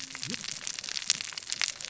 {"label": "biophony, cascading saw", "recorder": "SoundTrap 600 or HydroMoth"}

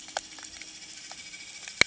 {"label": "anthrophony, boat engine", "recorder": "HydroMoth"}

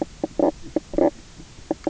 {"label": "biophony, knock croak", "recorder": "SoundTrap 300"}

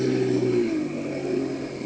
{"label": "anthrophony, boat engine", "recorder": "HydroMoth"}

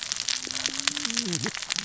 {"label": "biophony, cascading saw", "recorder": "SoundTrap 600 or HydroMoth"}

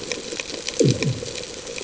{"label": "anthrophony, bomb", "recorder": "HydroMoth"}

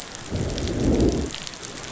{"label": "biophony, growl", "recorder": "SoundTrap 500"}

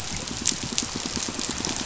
{"label": "biophony, pulse", "recorder": "SoundTrap 500"}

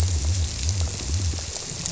{"label": "biophony", "recorder": "SoundTrap 300"}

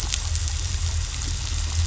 {"label": "anthrophony, boat engine", "recorder": "SoundTrap 500"}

